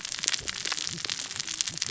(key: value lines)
label: biophony, cascading saw
recorder: SoundTrap 600 or HydroMoth